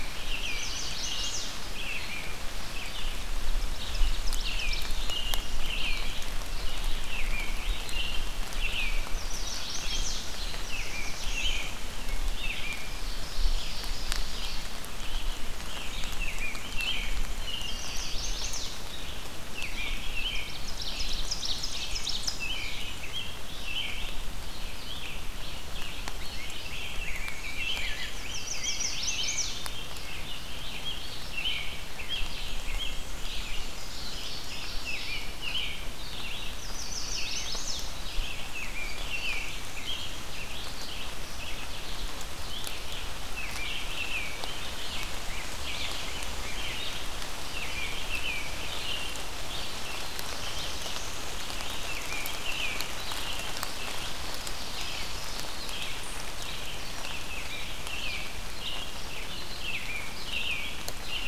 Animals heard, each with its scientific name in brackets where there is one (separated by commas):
Black-throated Blue Warbler (Setophaga caerulescens), Ovenbird (Seiurus aurocapilla), Red-eyed Vireo (Vireo olivaceus), American Robin (Turdus migratorius), Chestnut-sided Warbler (Setophaga pensylvanica), Rose-breasted Grosbeak (Pheucticus ludovicianus), Black-and-white Warbler (Mniotilta varia)